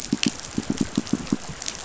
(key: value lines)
label: biophony, pulse
recorder: SoundTrap 500